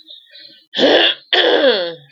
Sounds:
Throat clearing